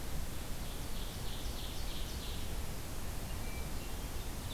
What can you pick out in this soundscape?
Ovenbird, Hermit Thrush